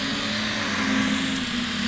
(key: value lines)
label: anthrophony, boat engine
recorder: SoundTrap 500